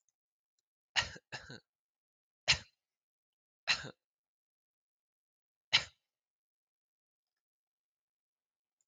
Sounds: Cough